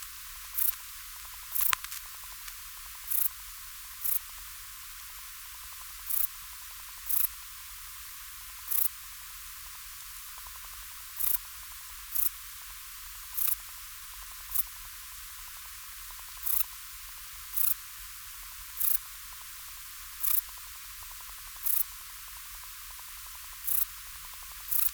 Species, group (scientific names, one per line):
Pterolepis spoliata
Orthoptera